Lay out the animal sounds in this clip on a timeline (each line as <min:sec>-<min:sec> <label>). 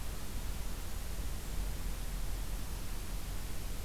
0:00.4-0:01.9 Golden-crowned Kinglet (Regulus satrapa)